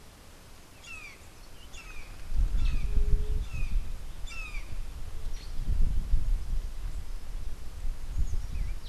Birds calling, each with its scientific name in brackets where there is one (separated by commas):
Brown Jay (Psilorhinus morio), Black-headed Saltator (Saltator atriceps)